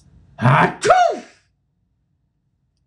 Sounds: Sneeze